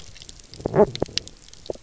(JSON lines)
{"label": "biophony", "recorder": "SoundTrap 300"}